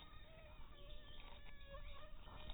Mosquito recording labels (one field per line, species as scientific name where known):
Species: mosquito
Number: one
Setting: cup